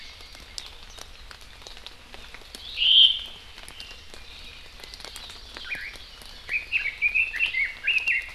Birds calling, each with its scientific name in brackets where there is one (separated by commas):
Red-billed Leiothrix (Leiothrix lutea), Omao (Myadestes obscurus), Hawaii Amakihi (Chlorodrepanis virens)